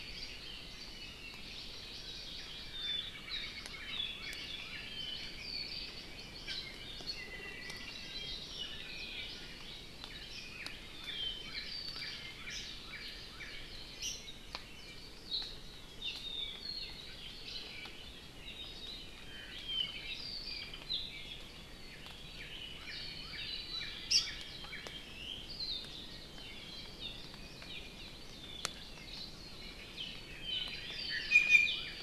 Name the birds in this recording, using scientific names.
Chlorodrepanis virens, Cardinalis cardinalis, Himatione sanguinea, Drepanis coccinea, Loxops coccineus